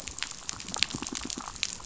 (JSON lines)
{"label": "biophony, pulse", "recorder": "SoundTrap 500"}